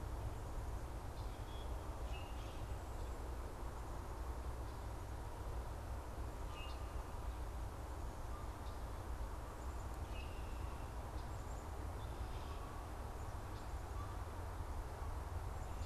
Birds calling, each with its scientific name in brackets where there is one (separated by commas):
Black-capped Chickadee (Poecile atricapillus), Common Grackle (Quiscalus quiscula)